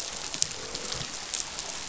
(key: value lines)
label: biophony, croak
recorder: SoundTrap 500